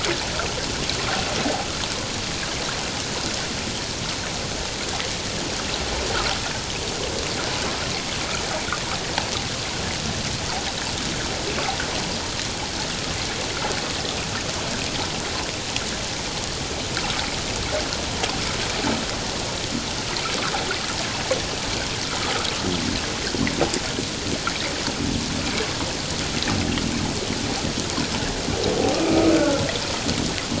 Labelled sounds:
29.0	29.6	humpback whale, 1.2 to 2.6 kHz

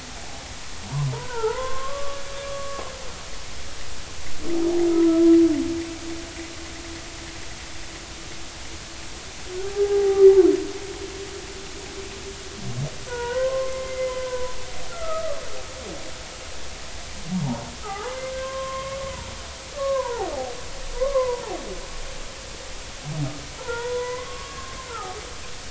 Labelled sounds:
0.1	2.2	humpback whale, 0.80 to 1.6 kHz
2.5	2.8	humpback whale, 1.1 to 1.2 kHz
4.9	5.3	humpback whale, 1.2 to 1.4 kHz
9.7	10.2	humpback whale, 0.80 to 0.86 kHz
13.1	14.5	humpback whale, 0.90 to 2.1 kHz
14.9	15.4	humpback whale, 1.1 to 1.4 kHz
17.8	19.1	humpback whale, 0.80 to 2.2 kHz
19.7	20.3	humpback whale, 0.80 to 1.2 kHz
20.9	21.4	humpback whale, 0.90 to 1.2 kHz
23.6	25.2	humpback whale, 0.80 to 3.5 kHz

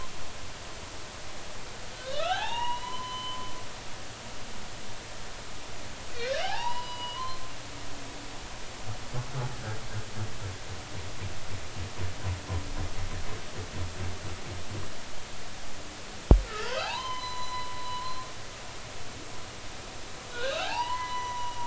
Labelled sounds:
1.9	3.5	humpback whale, 0.80 to 4.2 kHz
6.2	7.4	humpback whale, 0.80 to 5.0 kHz
16.5	18.2	humpback whale, 0.80 to 6.1 kHz
20.3	21.6	humpback whale, 0.80 to 4.2 kHz

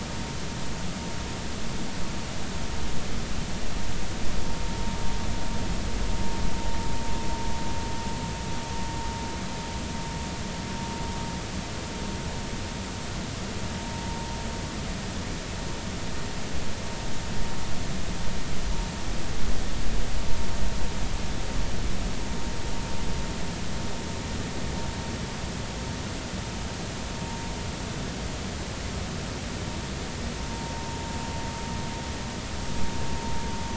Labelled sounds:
30.5	31.0	vessel noise, 0.86 to 0.96 kHz

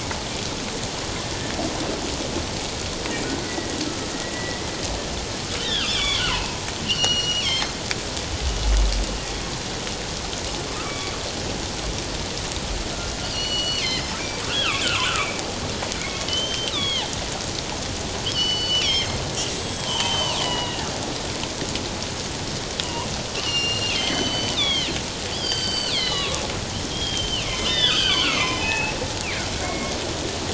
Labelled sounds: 3.4	4.6	killer whale, northern resident, G clan, 1.9 to 2.0 kHz
5.6	7.8	killer whale, northern resident, G clan, 0.81 to 6.5 kHz
10.8	11.1	killer whale, northern resident, G clan, 1.1 to 2.3 kHz
13.3	15.1	killer whale, northern resident, G clan, 0.97 to 7.4 kHz
16.0	17.1	killer whale, northern resident, G clan, 1.7 to 6.3 kHz
18.2	20.9	killer whale, northern resident, G clan, 0.88 to 7.9 kHz
22.8	23.1	killer whale, northern resident, G clan, 2.8 to 3.0 kHz
23.3	24.9	killer whale, northern resident, G clan, 1.8 to 6.2 kHz
25.3	28.9	killer whale, northern resident, G clan, 0.81 to 7.8 kHz
29.2	30.0	killer whale, northern resident, G clan, 1.9 to 2.8 kHz

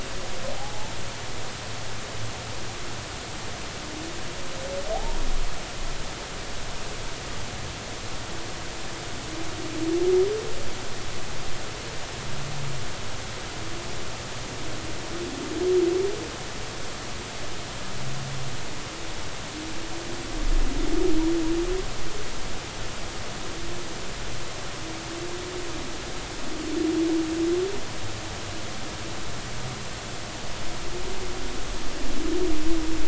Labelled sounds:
0.5	0.9	humpback whale, 0.80 to 0.93 kHz
4.9	5.2	humpback whale, 0.80 to 0.99 kHz

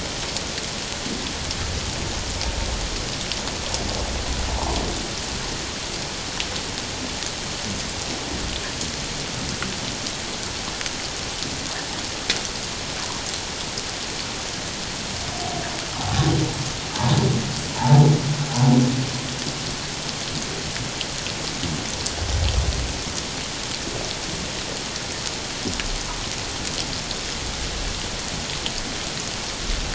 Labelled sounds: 4.5	4.8	humpback whale, 0.78 to 1.2 kHz

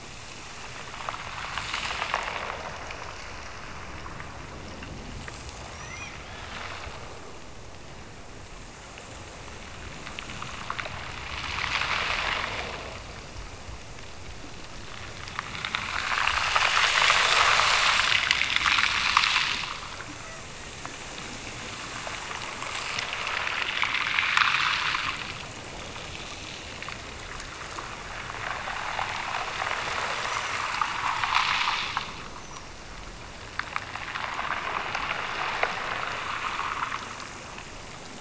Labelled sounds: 5.7	6.4	killer whale, Bigg's (transient), Gulf of Alaska transient, 1.7 to 6.1 kHz
20.1	21.0	killer whale, Bigg's (transient), Gulf of Alaska transient, 1.0 to 2.1 kHz

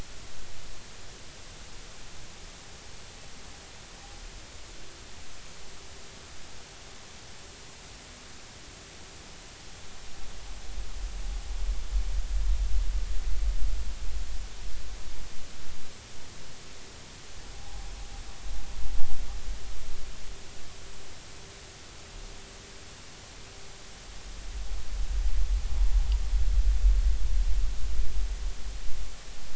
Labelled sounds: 17.5	17.9	humpback whale, 0.80 to 0.86 kHz

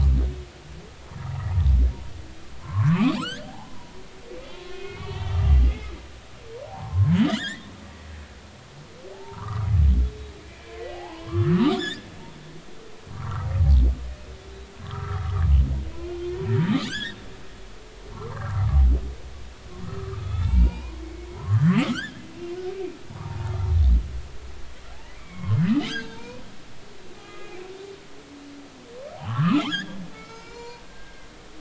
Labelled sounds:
2.6	3.9	humpback whale, 0.80 to 4.8 kHz
4.5	5.9	humpback whale, 1.0 to 3.2 kHz
6.7	7.7	humpback whale, 0.80 to 5.4 kHz
9.1	9.7	humpback whale, 0.80 to 1.4 kHz
10.4	12.1	humpback whale, 0.80 to 7.3 kHz
13.1	13.5	humpback whale, 0.90 to 1.5 kHz
14.8	15.4	humpback whale, 0.99 to 1.4 kHz
15.9	16.2	humpback whale, 2.3 to 2.5 kHz
16.9	17.2	humpback whale, 1.4 to 3.9 kHz
18.1	18.8	humpback whale, 0.86 to 1.7 kHz
19.8	22.2	humpback whale, 0.83 to 4.9 kHz
23.1	23.5	humpback whale, 0.80 to 1.3 kHz
25.2	26.4	humpback whale, 0.86 to 6.6 kHz
27.2	27.6	humpback whale, 1.2 to 2.5 kHz
29.1	31.3	humpback whale, 0.80 to 7.2 kHz

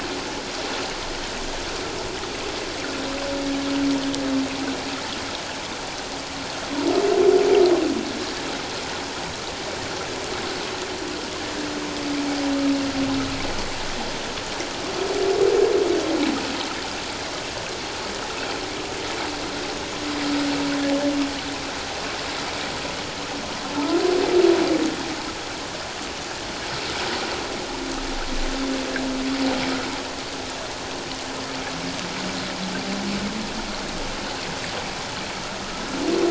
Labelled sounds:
23.7	24.0	humpback whale, 1.2 to 1.4 kHz

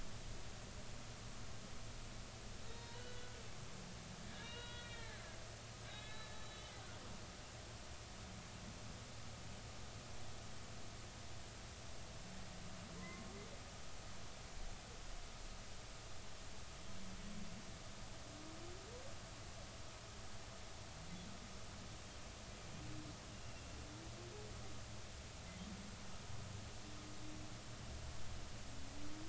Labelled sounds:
2.7	3.3	humpback whale, 0.90 to 3.8 kHz
4.3	5.2	humpback whale, 0.93 to 3.9 kHz
5.8	6.7	humpback whale, 1.5 to 4.0 kHz
13.0	13.2	humpback whale, 0.99 to 1.1 kHz

